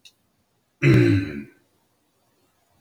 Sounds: Throat clearing